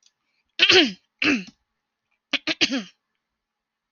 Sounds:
Throat clearing